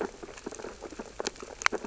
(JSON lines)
{"label": "biophony, sea urchins (Echinidae)", "recorder": "SoundTrap 600 or HydroMoth"}